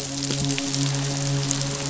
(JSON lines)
{"label": "biophony, midshipman", "recorder": "SoundTrap 500"}